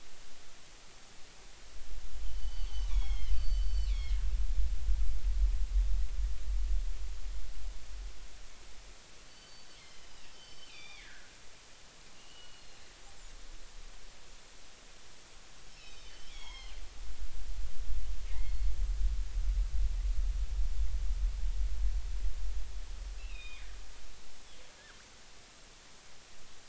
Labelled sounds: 2.2	4.2	killer whale, northern resident, G clan, 2.0 to 4.7 kHz
9.3	11.3	killer whale, northern resident, G clan, 1.4 to 5.6 kHz
12.1	12.8	killer whale, northern resident, G clan, 2.7 to 3.0 kHz
15.8	16.8	killer whale, northern resident, G clan, 0.80 to 6.8 kHz
18.3	18.7	killer whale, northern resident, G clan, 1.8 to 4.4 kHz
23.2	23.7	killer whale, northern resident, G clan, 2.1 to 3.8 kHz

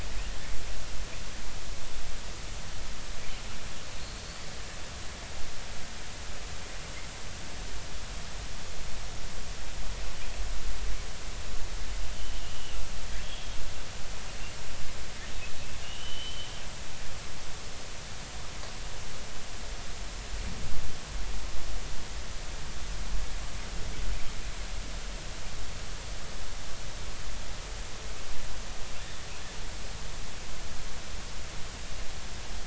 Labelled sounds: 13.2	13.5	killer whale, southern resident, J clan, L pod, call S02iii, 3.2 to 3.5 kHz
15.8	16.5	killer whale, southern resident, J clan, 2.8 to 3.2 kHz

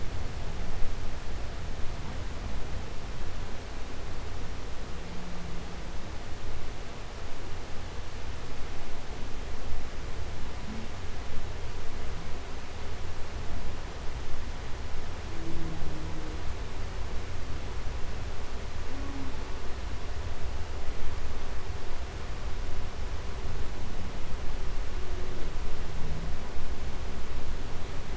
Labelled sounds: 15.2	16.5	humpback whale, 0.07 to 0.78 kHz

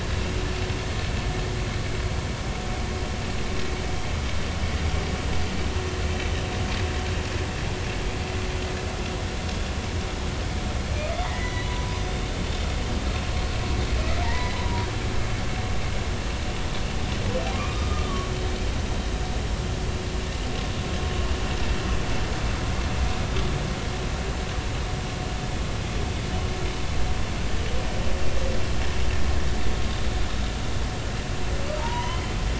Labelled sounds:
11.2	11.8	humpback whale, 1.8 to 4.1 kHz
14.2	14.6	humpback whale, 0.83 to 2.1 kHz
17.5	18.3	humpback whale, 1.0 to 1.3 kHz
31.8	32.3	humpback whale, 0.86 to 2.1 kHz

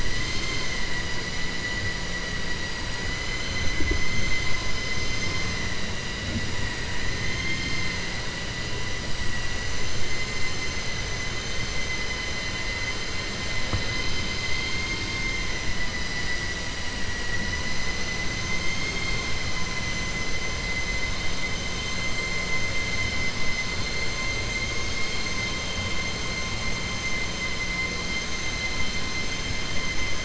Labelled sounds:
7.2	7.9	vessel noise, 2.0 to 6.4 kHz
14.3	15.4	vessel noise, 2.1 to 6.4 kHz
15.7	19.3	vessel noise, 0.98 to 7.3 kHz

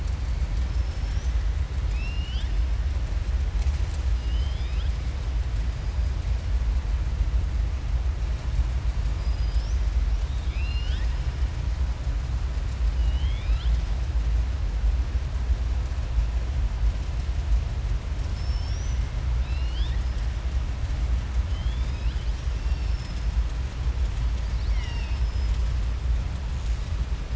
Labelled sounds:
1.8	2.5	killer whale, southern resident, 1.6 to 5.7 kHz
4.1	5.0	killer whale, southern resident, 2.3 to 5.1 kHz
10.2	11.1	killer whale, southern resident, 1.5 to 6.4 kHz
12.9	13.8	killer whale, southern resident, 1.3 to 5.5 kHz
18.2	19.0	killer whale, southern resident, 3.0 to 6.1 kHz
19.3	20.0	killer whale, southern resident, 1.8 to 5.2 kHz
21.4	22.3	killer whale, southern resident, 2.3 to 5.1 kHz
24.4	25.5	killer whale, southern resident, 0.98 to 5.7 kHz

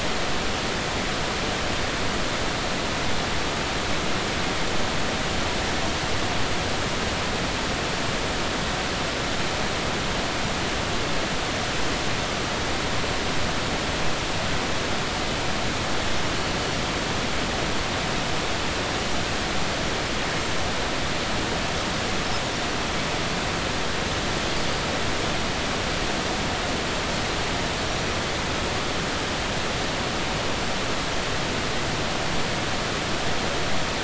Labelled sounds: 27.9	28.1	Pacific white-sided dolphin, 5.6 to 5.9 kHz

